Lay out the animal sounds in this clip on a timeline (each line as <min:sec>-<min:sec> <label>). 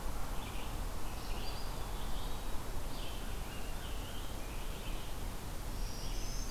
0:00.0-0:06.5 Red-eyed Vireo (Vireo olivaceus)
0:01.3-0:02.6 Eastern Wood-Pewee (Contopus virens)
0:02.6-0:05.0 Scarlet Tanager (Piranga olivacea)
0:05.7-0:06.5 Black-throated Green Warbler (Setophaga virens)